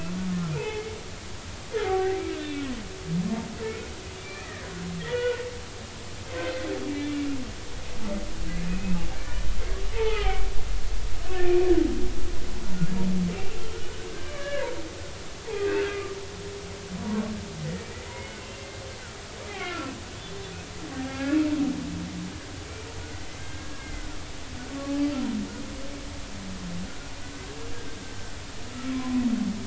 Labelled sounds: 0.5	1.0	humpback whale, 0.80 to 2.7 kHz
1.8	2.7	humpback whale, 0.80 to 2.8 kHz
4.2	5.4	humpback whale, 0.90 to 2.5 kHz
6.9	7.2	humpback whale, 2.2 to 2.4 kHz
8.7	9.5	humpback whale, 1.7 to 2.6 kHz
9.9	10.5	humpback whale, 0.80 to 2.7 kHz
11.2	11.5	humpback whale, 1.4 to 1.5 kHz
13.6	14.8	humpback whale, 0.90 to 1.8 kHz
15.5	16.2	humpback whale, 1.0 to 2.1 kHz
17.0	17.8	humpback whale, 0.90 to 2.0 kHz
18.1	18.7	humpback whale, 2.0 to 2.8 kHz
19.5	19.9	humpback whale, 1.3 to 3.3 kHz
21.0	21.4	humpback whale, 0.80 to 2.3 kHz
23.3	24.1	humpback whale, 1.4 to 2.2 kHz
28.9	29.2	humpback whale, 0.96 to 1.1 kHz

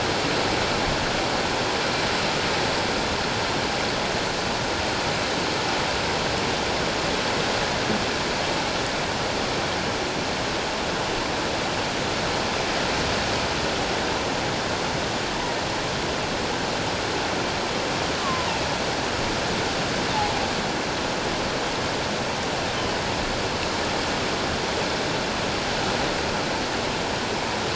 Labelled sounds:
18.2	18.5	killer whale, offshore, 0.88 to 1.2 kHz

